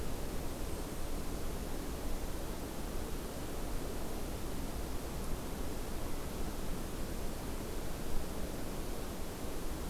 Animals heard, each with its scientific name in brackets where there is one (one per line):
Blackpoll Warbler (Setophaga striata)